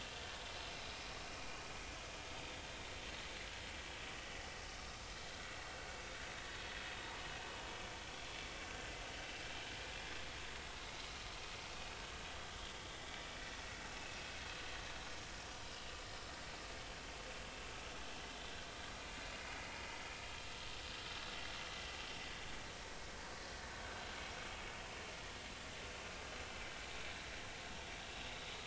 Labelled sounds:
13.8	14.2	vessel noise, 2.5 to 2.8 kHz

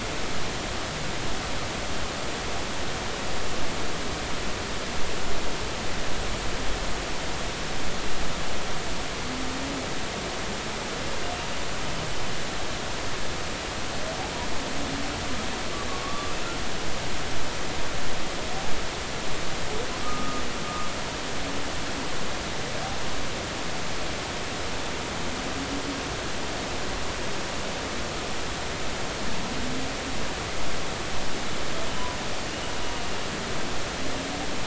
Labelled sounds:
15.9	16.3	humpback whale, 1.1 to 1.2 kHz
21.0	21.4	humpback whale, 1.2 to 1.3 kHz

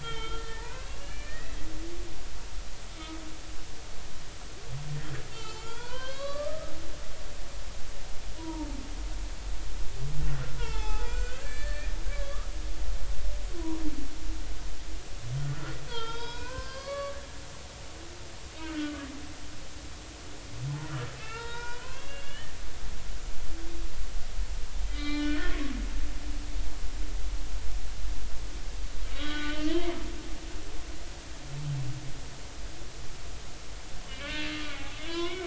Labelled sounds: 0.0	1.7	humpback whale, 0.86 to 4.1 kHz
3.0	3.2	humpback whale, 2.1 to 2.3 kHz
5.3	6.7	humpback whale, 0.83 to 7.3 kHz
8.4	8.7	humpback whale, 0.86 to 1.0 kHz
10.6	12.5	humpback whale, 0.80 to 7.4 kHz
13.5	13.8	humpback whale, 0.90 to 1.1 kHz
15.4	17.2	humpback whale, 0.86 to 5.4 kHz
18.6	19.1	humpback whale, 1.1 to 1.6 kHz
20.8	22.5	humpback whale, 0.86 to 3.8 kHz
24.8	25.6	humpback whale, 1.1 to 5.1 kHz
29.1	30.0	humpback whale, 0.93 to 3.4 kHz
34.1	35.4	humpback whale, 0.96 to 3.5 kHz

